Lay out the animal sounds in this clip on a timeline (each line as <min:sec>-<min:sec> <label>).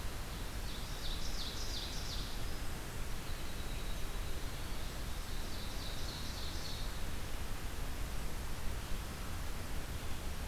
0:00.0-0:02.8 Ovenbird (Seiurus aurocapilla)
0:02.9-0:04.5 Winter Wren (Troglodytes hiemalis)
0:04.8-0:07.2 Ovenbird (Seiurus aurocapilla)